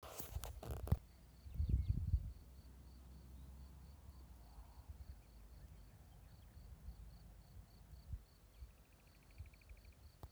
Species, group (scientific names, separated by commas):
Gryllus campestris, Orthoptera